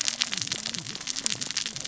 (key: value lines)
label: biophony, cascading saw
recorder: SoundTrap 600 or HydroMoth